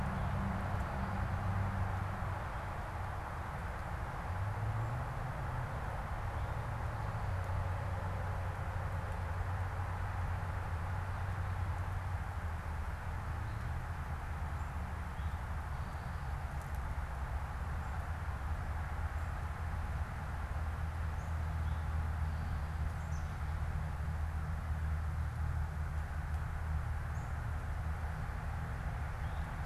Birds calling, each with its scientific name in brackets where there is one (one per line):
Eastern Towhee (Pipilo erythrophthalmus)
unidentified bird